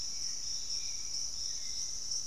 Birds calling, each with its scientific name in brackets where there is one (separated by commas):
Hauxwell's Thrush (Turdus hauxwelli)